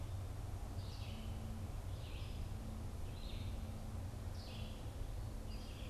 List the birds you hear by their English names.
Red-eyed Vireo